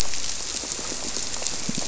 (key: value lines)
label: biophony, squirrelfish (Holocentrus)
recorder: SoundTrap 300